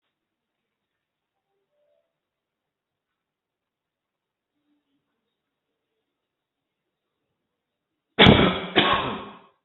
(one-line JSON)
{"expert_labels": [{"quality": "poor", "cough_type": "dry", "dyspnea": false, "wheezing": false, "stridor": false, "choking": false, "congestion": false, "nothing": true, "diagnosis": "COVID-19", "severity": "mild"}], "age": 64, "gender": "male", "respiratory_condition": false, "fever_muscle_pain": false, "status": "healthy"}